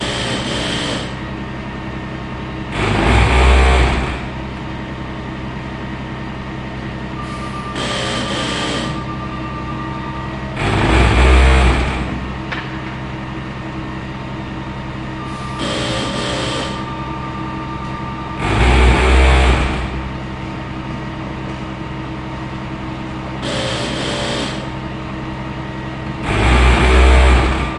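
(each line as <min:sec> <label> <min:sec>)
0:00.0 A machine is working. 0:27.8
0:00.0 A drill is being used. 0:01.2
0:02.6 A drill is being used. 0:04.4
0:07.6 A drill is being used. 0:09.3
0:10.6 A drill is being used. 0:12.0
0:15.4 A drill is being used. 0:17.3
0:18.4 A drill is being used. 0:19.9
0:23.4 A drill is being used. 0:25.0
0:26.2 A drill is being used. 0:27.8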